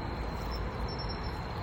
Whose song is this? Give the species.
Xenogryllus marmoratus